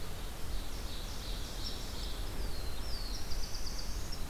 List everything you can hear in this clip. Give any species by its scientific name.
Seiurus aurocapilla, Setophaga caerulescens